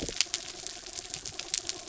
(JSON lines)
{"label": "anthrophony, mechanical", "recorder": "SoundTrap 300"}